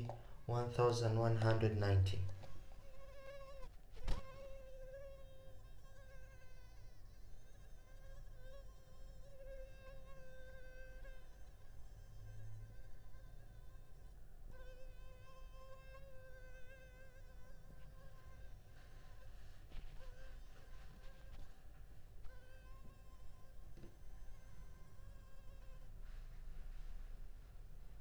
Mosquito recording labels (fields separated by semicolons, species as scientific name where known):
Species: Culex pipiens complex; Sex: female; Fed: unfed; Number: one; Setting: cup